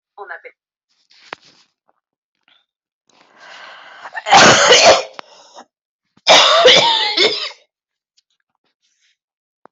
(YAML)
expert_labels:
- quality: good
  cough_type: dry
  dyspnea: false
  wheezing: false
  stridor: false
  choking: false
  congestion: false
  nothing: true
  diagnosis: upper respiratory tract infection
  severity: mild
age: 45
gender: female
respiratory_condition: true
fever_muscle_pain: true
status: COVID-19